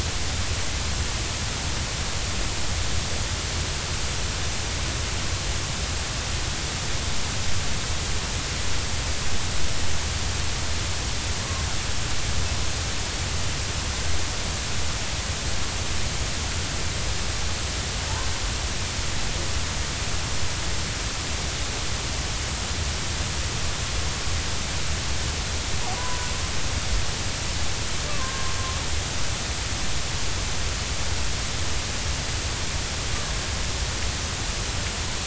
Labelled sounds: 26.0	26.3	killer whale, Bigg's (transient), 0.93 to 1.1 kHz
28.1	28.5	killer whale, Bigg's (transient), 0.99 to 1.7 kHz

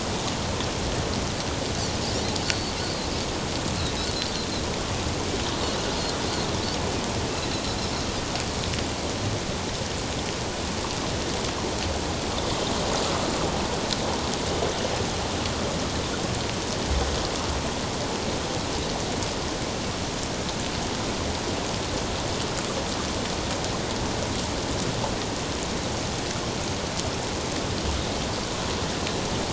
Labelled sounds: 2.5	3.1	Pacific white-sided dolphin, 4.0 to 4.7 kHz

